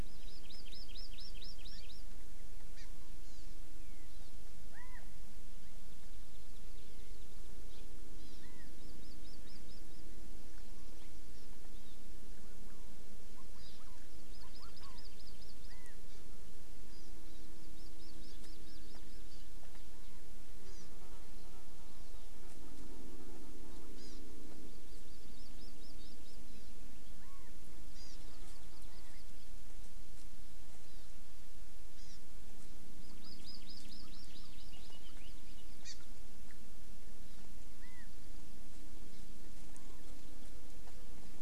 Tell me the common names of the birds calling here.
Hawaii Amakihi, Chinese Hwamei, House Finch